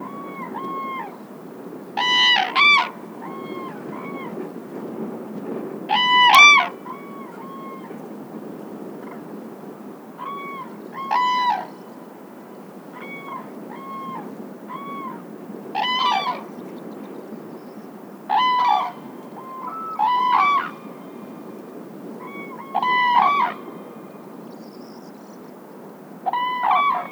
Is one bird close and one bird far away?
yes